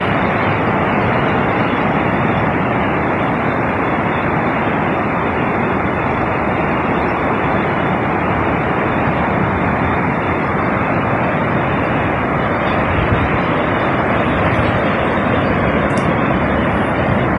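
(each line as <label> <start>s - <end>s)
Sea waves and seagulls calling. 0.0s - 17.3s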